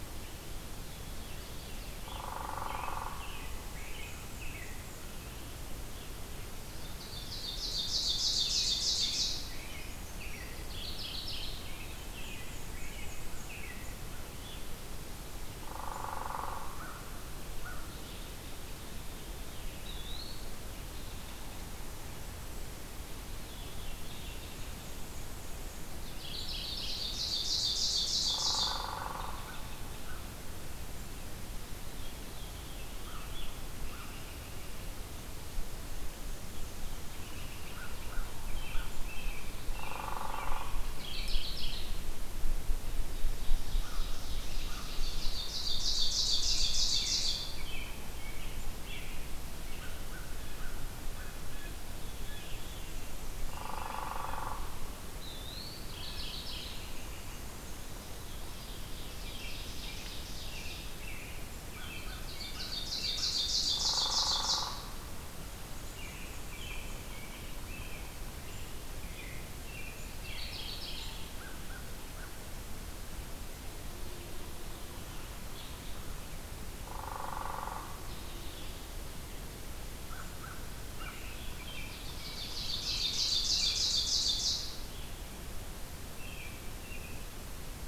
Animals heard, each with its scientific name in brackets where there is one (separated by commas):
Black-and-white Warbler (Mniotilta varia), Ovenbird (Seiurus aurocapilla), Mourning Warbler (Geothlypis philadelphia), Eastern Wood-Pewee (Contopus virens), Brown Creeper (Certhia americana), Veery (Catharus fuscescens), Hairy Woodpecker (Dryobates villosus), American Crow (Corvus brachyrhynchos), American Robin (Turdus migratorius)